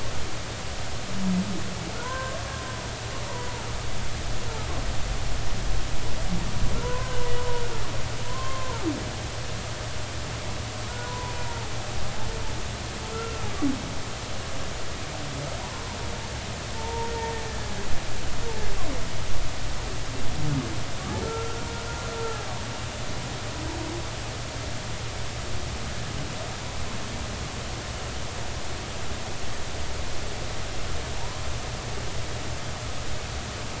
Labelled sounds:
2.0	2.4	humpback whale, 0.93 to 1.6 kHz
6.8	7.2	humpback whale, 0.90 to 1.6 kHz
8.3	8.8	humpback whale, 0.83 to 1.1 kHz
10.9	11.3	humpback whale, 0.86 to 1.5 kHz
13.1	13.5	humpback whale, 1.2 to 1.5 kHz
16.7	17.1	humpback whale, 0.86 to 0.99 kHz
21.2	21.6	humpback whale, 1.3 to 1.5 kHz
22.2	22.4	humpback whale, 1.2 to 1.4 kHz

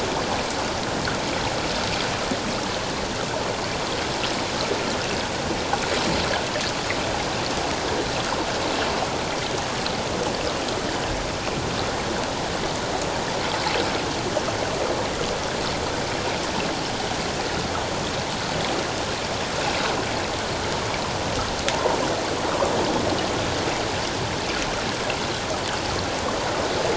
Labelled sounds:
21.7	22.0	water noise, 0.78 to 1.1 kHz

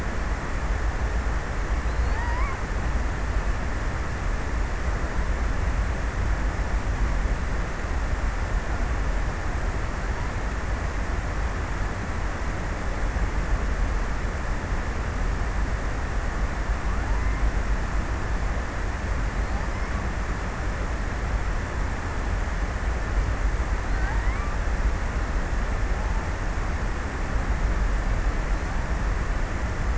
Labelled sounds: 1.5	3.0	killer whale, offshore, 0.35 to 5.5 kHz
23.5	24.8	killer whale, offshore, 0.53 to 5.4 kHz

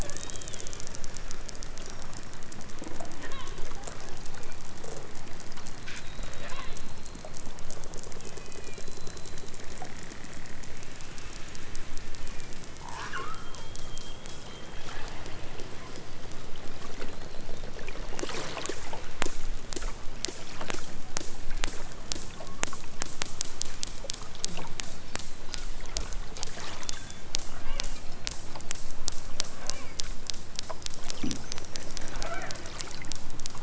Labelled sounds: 0.0	0.7	killer whale, southern Alaska resident, 1.2 to 4.1 kHz
3.2	3.7	killer whale, southern Alaska resident, 0.74 to 4.0 kHz
6.4	7.4	killer whale, southern Alaska resident, 0.55 to 4.5 kHz
8.2	9.4	killer whale, southern Alaska resident, 1.5 to 4.9 kHz
12.0	13.4	killer whale, southern Alaska resident, 0.46 to 8.0 kHz
27.5	27.9	killer whale, southern Alaska resident, 1.1 to 3.1 kHz
29.6	30.0	killer whale, southern Alaska resident, 0.64 to 3.0 kHz
32.1	32.6	killer whale, southern Alaska resident, 0.37 to 3.4 kHz

